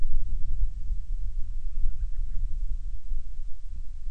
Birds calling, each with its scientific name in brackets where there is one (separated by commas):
Band-rumped Storm-Petrel (Hydrobates castro)